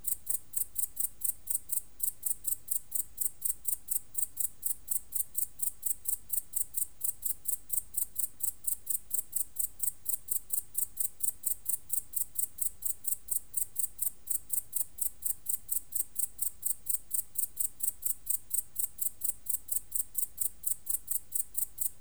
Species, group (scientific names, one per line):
Tettigonia hispanica
Orthoptera